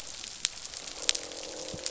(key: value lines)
label: biophony, croak
recorder: SoundTrap 500